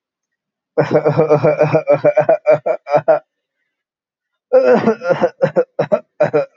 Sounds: Cough